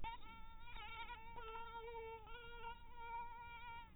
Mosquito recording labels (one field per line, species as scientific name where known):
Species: mosquito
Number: one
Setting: cup